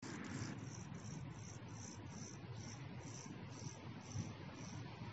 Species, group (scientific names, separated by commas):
Chorthippus mollis, Orthoptera